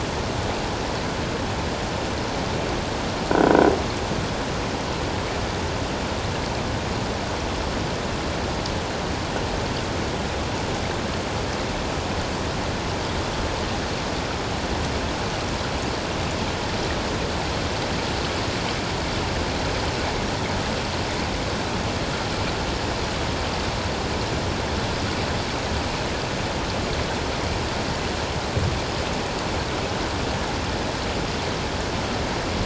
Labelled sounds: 3.3	3.7	croaking sound likely from a nearby submerged object, 1.4 to 1.6 kHz

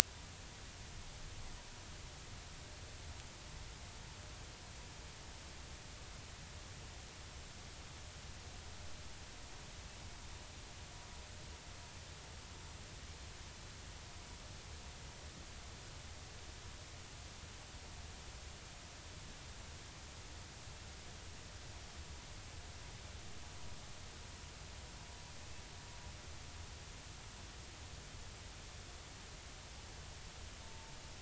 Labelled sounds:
30.6	31.0	vessel noise, 0.86 to 0.96 kHz

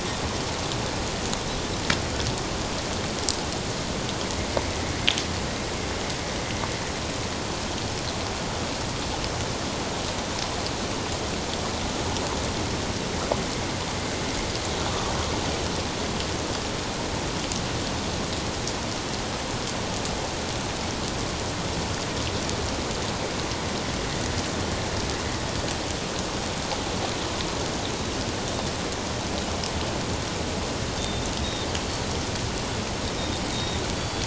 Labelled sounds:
31.0	31.7	Pacific white-sided dolphin, 3.5 to 3.8 kHz
33.5	34.2	Pacific white-sided dolphin, 3.3 to 4.7 kHz

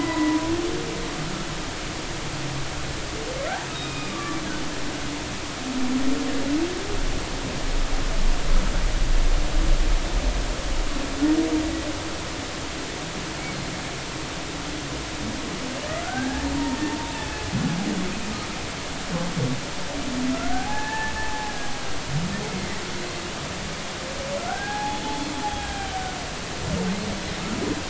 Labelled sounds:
0.0	0.4	humpback whale, 1.9 to 2.0 kHz
3.7	4.4	humpback whale, 1.1 to 3.8 kHz
15.8	17.3	humpback whale, 0.86 to 3.7 kHz
20.3	21.5	humpback whale, 0.80 to 1.8 kHz
22.4	22.8	humpback whale, 1.8 to 2.3 kHz
24.5	25.7	humpback whale, 0.80 to 3.5 kHz

